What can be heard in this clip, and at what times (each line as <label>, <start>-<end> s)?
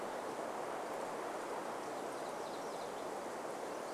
MacGillivray's Warbler song, 2-4 s